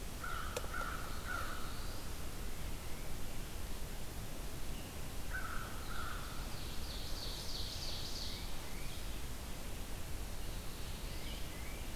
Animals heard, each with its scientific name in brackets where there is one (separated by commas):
Tufted Titmouse (Baeolophus bicolor), Black-throated Blue Warbler (Setophaga caerulescens), American Crow (Corvus brachyrhynchos), Ovenbird (Seiurus aurocapilla)